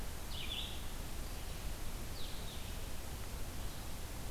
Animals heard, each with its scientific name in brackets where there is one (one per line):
Red-eyed Vireo (Vireo olivaceus)